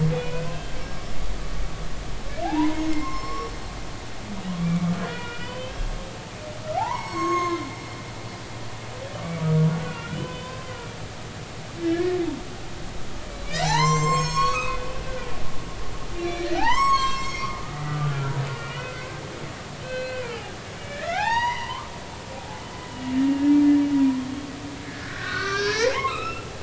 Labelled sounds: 0.1	0.8	humpback whale, 1.4 to 3.0 kHz
2.4	3.5	humpback whale, 0.80 to 5.4 kHz
4.6	5.9	humpback whale, 1.3 to 3.3 kHz
6.8	7.7	humpback whale, 0.80 to 7.8 kHz
9.7	10.7	humpback whale, 0.96 to 3.1 kHz
11.8	12.2	humpback whale, 1.6 to 1.9 kHz
13.6	15.6	humpback whale, 0.80 to 7.7 kHz
16.2	20.4	humpback whale, 0.80 to 7.7 kHz
20.8	21.9	humpback whale, 0.80 to 6.0 kHz
24.9	26.5	humpback whale, 0.80 to 4.1 kHz

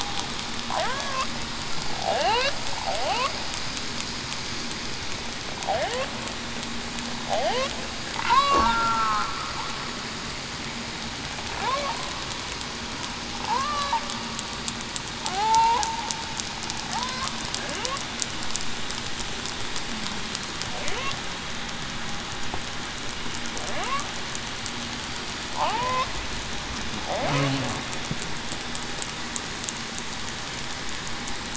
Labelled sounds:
0.9	1.2	killer whale, southern resident, 1.5 to 1.7 kHz
2.1	2.5	killer whale, southern resident, 0.47 to 1.1 kHz
8.3	8.7	killer whale, southern resident, 0.89 to 1.2 kHz
13.5	13.9	killer whale, southern resident, 0.75 to 1.2 kHz
15.3	15.8	killer whale, southern resident, 0.68 to 1.1 kHz
16.9	17.3	killer whale, southern resident, 0.70 to 1.1 kHz
25.6	26.1	killer whale, southern resident, 0.58 to 1.2 kHz

